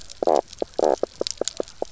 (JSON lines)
{"label": "biophony, knock croak", "recorder": "SoundTrap 300"}